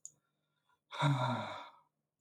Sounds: Sigh